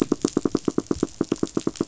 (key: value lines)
label: biophony, knock
recorder: SoundTrap 500